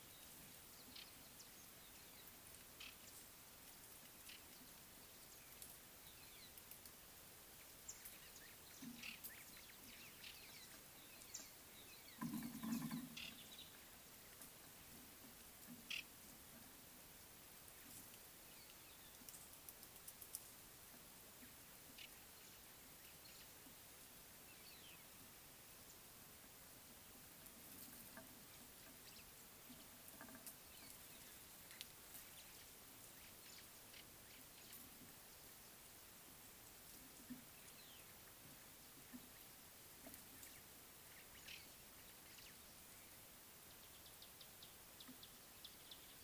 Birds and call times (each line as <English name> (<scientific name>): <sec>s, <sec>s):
Northern Crombec (Sylvietta brachyura): 2.9s, 9.1s, 16.0s, 22.0s, 41.6s